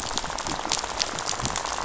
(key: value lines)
label: biophony, rattle
recorder: SoundTrap 500